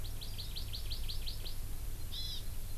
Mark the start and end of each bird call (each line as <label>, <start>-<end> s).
Hawaii Amakihi (Chlorodrepanis virens), 0.0-1.6 s
Hawaii Amakihi (Chlorodrepanis virens), 2.1-2.4 s